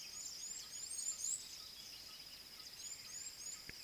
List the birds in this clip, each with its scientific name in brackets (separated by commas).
Red-cheeked Cordonbleu (Uraeginthus bengalus)